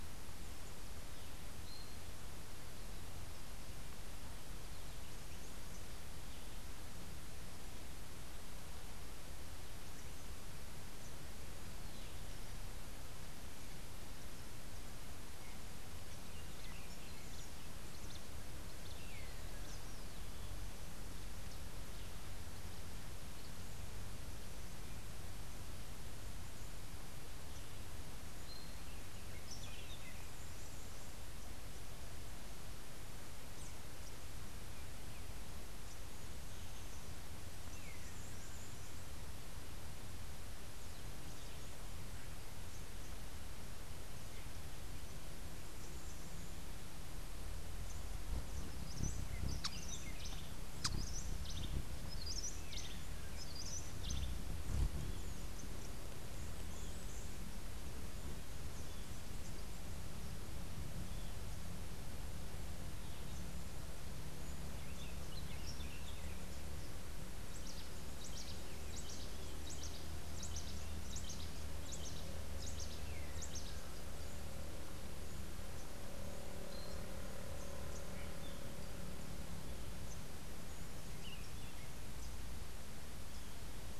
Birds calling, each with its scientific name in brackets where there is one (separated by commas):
Buff-throated Saltator (Saltator maximus), Rufous-tailed Hummingbird (Amazilia tzacatl), Long-tailed Manakin (Chiroxiphia linearis), Yellow-crowned Euphonia (Euphonia luteicapilla), Cabanis's Wren (Cantorchilus modestus)